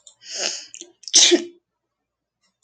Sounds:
Sneeze